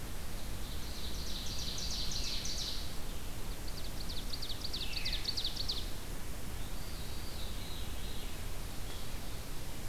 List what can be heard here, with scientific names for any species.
Seiurus aurocapilla, Catharus fuscescens